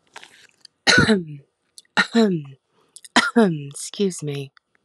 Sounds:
Cough